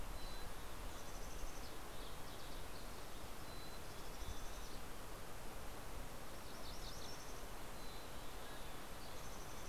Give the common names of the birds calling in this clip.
Mountain Chickadee, MacGillivray's Warbler, Mountain Quail